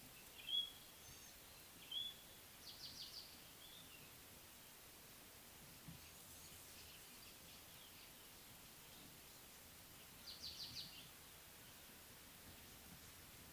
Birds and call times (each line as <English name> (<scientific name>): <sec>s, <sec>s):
African Pied Wagtail (Motacilla aguimp): 10.7s